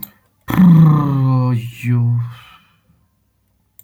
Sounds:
Sigh